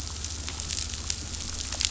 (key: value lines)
label: anthrophony, boat engine
recorder: SoundTrap 500